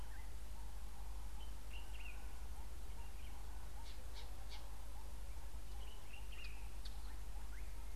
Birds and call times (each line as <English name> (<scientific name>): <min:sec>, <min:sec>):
Common Bulbul (Pycnonotus barbatus): 0:01.8, 0:06.3